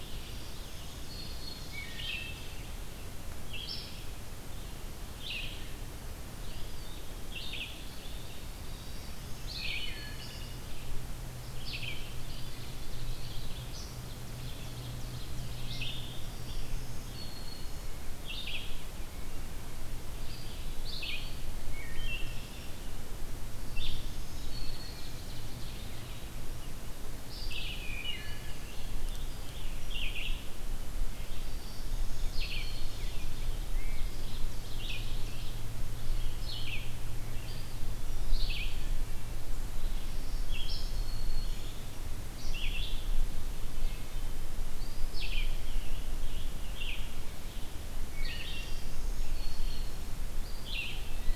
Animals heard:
Eastern Wood-Pewee (Contopus virens), Ovenbird (Seiurus aurocapilla), Red-eyed Vireo (Vireo olivaceus), Wood Thrush (Hylocichla mustelina), Black-throated Green Warbler (Setophaga virens)

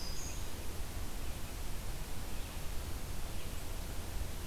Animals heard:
Red-eyed Vireo (Vireo olivaceus), Black-throated Green Warbler (Setophaga virens)

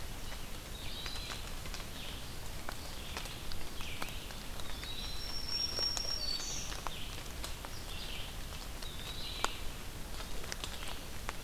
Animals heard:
Black-throated Green Warbler (Setophaga virens), Red-eyed Vireo (Vireo olivaceus), Eastern Wood-Pewee (Contopus virens)

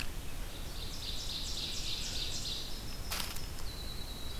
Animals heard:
Winter Wren (Troglodytes hiemalis), Ovenbird (Seiurus aurocapilla)

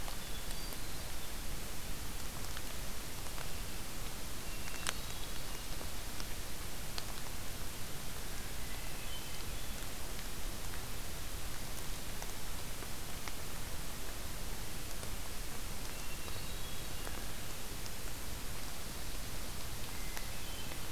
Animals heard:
Hermit Thrush (Catharus guttatus)

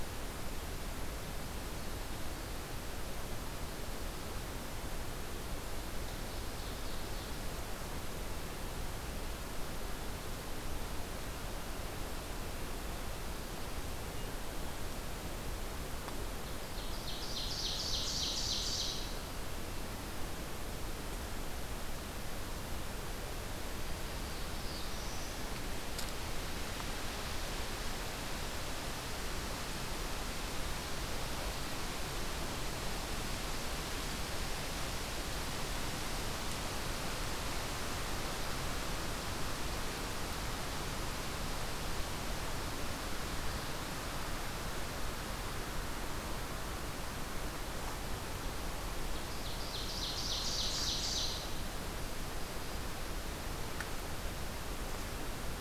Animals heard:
Ovenbird (Seiurus aurocapilla), Black-throated Blue Warbler (Setophaga caerulescens)

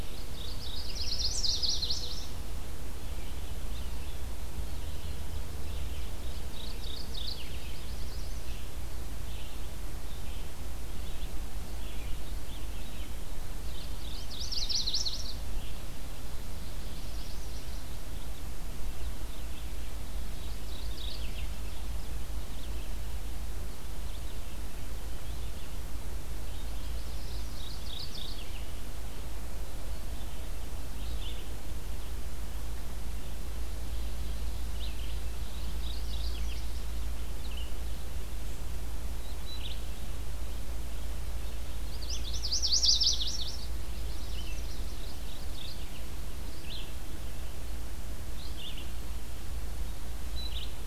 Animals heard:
Mourning Warbler (Geothlypis philadelphia), Red-eyed Vireo (Vireo olivaceus), Chestnut-sided Warbler (Setophaga pensylvanica), Magnolia Warbler (Setophaga magnolia)

